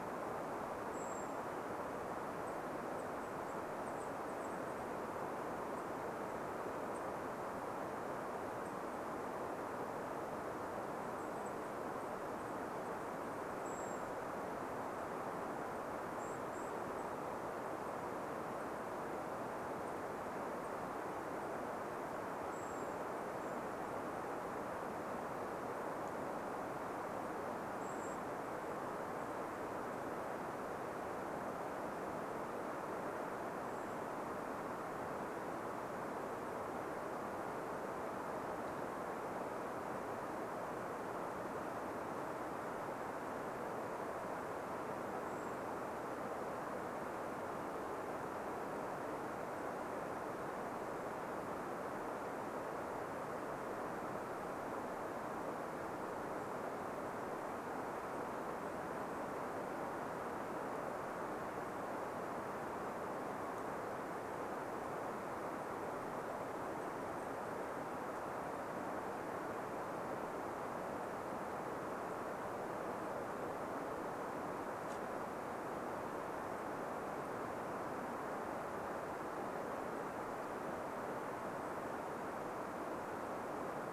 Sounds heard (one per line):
unidentified bird chip note
Golden-crowned Kinglet call